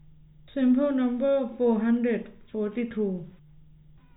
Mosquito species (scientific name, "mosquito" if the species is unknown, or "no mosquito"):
no mosquito